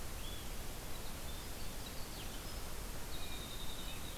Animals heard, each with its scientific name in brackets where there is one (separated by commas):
Winter Wren (Troglodytes hiemalis), Eastern Wood-Pewee (Contopus virens)